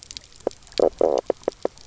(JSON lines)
{"label": "biophony, knock croak", "recorder": "SoundTrap 300"}